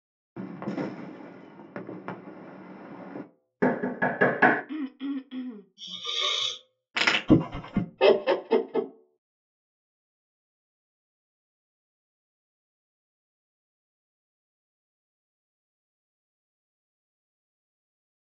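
First, at the start, the sound of quiet fireworks rings out. Then, about 4 seconds in, knocking is audible. After that, about 5 seconds in, someone coughs quietly. Afterwards, about 6 seconds in, hissing can be heard. Later, about 7 seconds in, crackling is heard. Then, about 7 seconds in, a dog can be heard. After that, about 8 seconds in, someone laughs.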